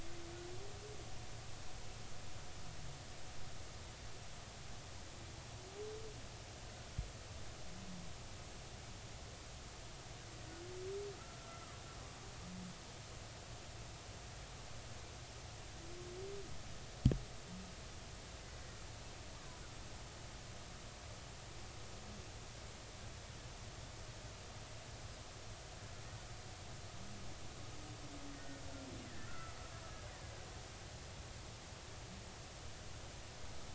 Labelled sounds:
11.2	11.8	killer whale, Bigg's (transient), 1.1 to 1.4 kHz
19.4	19.6	killer whale, Bigg's (transient), 0.96 to 1.2 kHz
28.3	29.5	killer whale, Bigg's (transient), 1.3 to 1.9 kHz

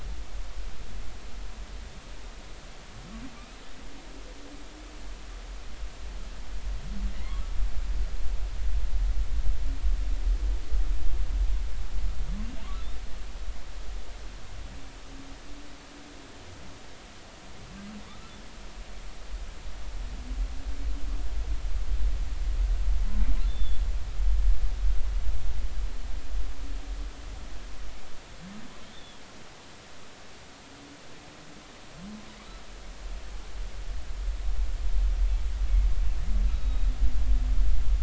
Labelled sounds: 7.1	7.4	humpback whale, 1.9 to 2.2 kHz
23.5	23.8	humpback whale, 3.4 to 3.6 kHz
28.9	29.2	humpback whale, 3.1 to 3.7 kHz
36.5	36.9	humpback whale, 2.5 to 4.0 kHz

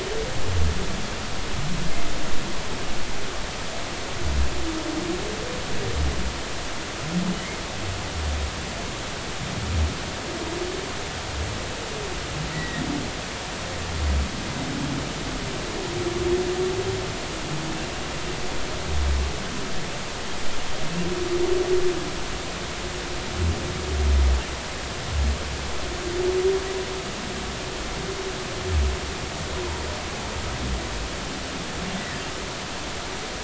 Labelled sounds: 12.5	12.8	humpback whale, 1.8 to 2.0 kHz
32.0	32.2	humpback whale, 1.7 to 2.0 kHz

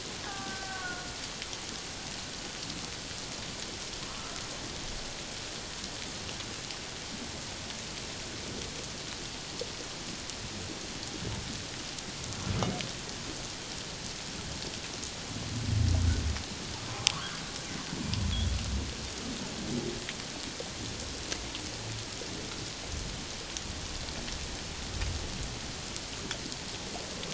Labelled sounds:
0.2	1.1	killer whale, Bigg's (transient), 0.78 to 1.7 kHz
17.0	17.3	humpback whale, 0.78 to 1.4 kHz

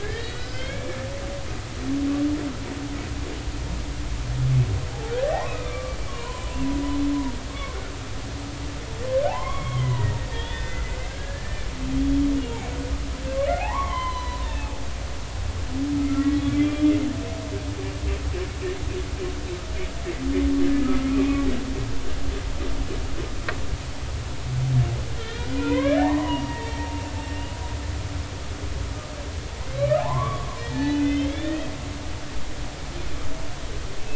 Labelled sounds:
0.0	1.0	humpback whale, 1.4 to 5.4 kHz
5.2	7.9	humpback whale, 0.80 to 2.7 kHz
8.5	11.7	humpback whale, 0.80 to 3.7 kHz
13.6	14.7	humpback whale, 0.80 to 4.1 kHz
16.1	16.6	humpback whale, 1.9 to 3.5 kHz
20.8	21.1	humpback whale, 1.2 to 1.4 kHz
25.2	26.9	humpback whale, 0.80 to 3.8 kHz
29.8	31.7	humpback whale, 0.80 to 4.5 kHz

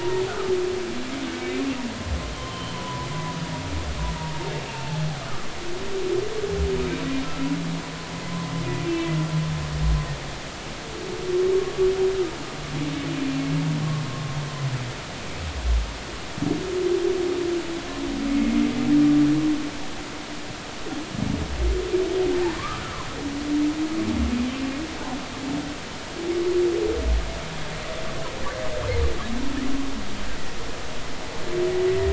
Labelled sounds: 2.3	3.4	humpback whale, 0.93 to 3.3 kHz
4.2	4.4	humpback whale, 0.90 to 0.96 kHz
4.7	5.0	humpback whale, 0.80 to 2.8 kHz
8.6	8.9	humpback whale, 2.3 to 2.5 kHz
18.3	18.6	humpback whale, 2.1 to 2.2 kHz
22.6	23.1	humpback whale, 0.96 to 1.5 kHz

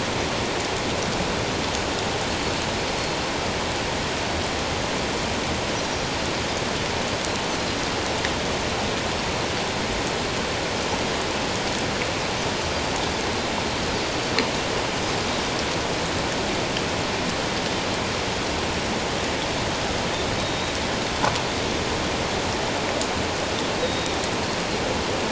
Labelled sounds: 20.4	20.8	Pacific white-sided dolphin, 3.7 to 3.9 kHz
23.8	24.2	Pacific white-sided dolphin, 3.5 to 3.9 kHz

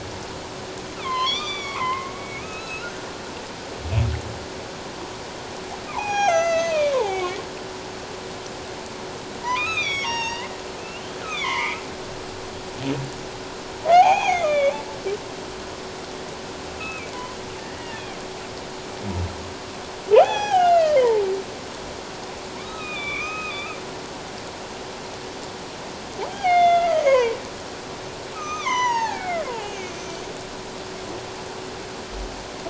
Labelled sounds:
1.1	1.8	humpback whale, 3.9 to 6.1 kHz
2.2	3.1	humpback whale, 1.2 to 6.8 kHz
5.9	7.2	humpback whale, 0.78 to 7.0 kHz
9.4	10.5	humpback whale, 0.84 to 6.8 kHz
10.8	11.8	humpback whale, 0.88 to 3.9 kHz
13.9	14.8	humpback whale, 0.78 to 6.8 kHz
16.8	18.0	humpback whale, 1.7 to 2.7 kHz
20.2	21.2	humpback whale, 0.78 to 6.1 kHz
22.6	23.8	humpback whale, 1.1 to 6.4 kHz
26.3	27.4	humpback whale, 0.78 to 6.4 kHz
28.3	30.2	humpback whale, 0.78 to 7.0 kHz

